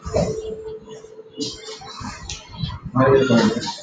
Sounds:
Cough